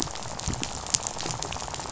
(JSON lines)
{"label": "biophony, rattle", "recorder": "SoundTrap 500"}